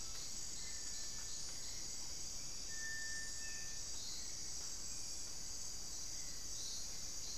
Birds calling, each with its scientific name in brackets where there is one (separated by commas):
Cinereous Tinamou (Crypturellus cinereus)